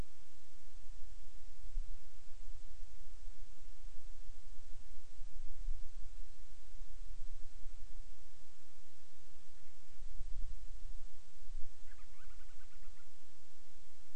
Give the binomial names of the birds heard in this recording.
Hydrobates castro